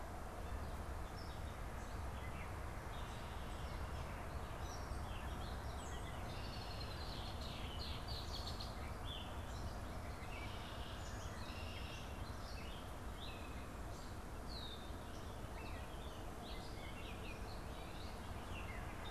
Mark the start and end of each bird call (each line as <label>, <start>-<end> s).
Gray Catbird (Dumetella carolinensis), 4.5-19.1 s
Red-winged Blackbird (Agelaius phoeniceus), 5.7-8.9 s
Red-winged Blackbird (Agelaius phoeniceus), 14.4-14.9 s
Warbling Vireo (Vireo gilvus), 15.9-18.3 s
Baltimore Oriole (Icterus galbula), 16.4-17.5 s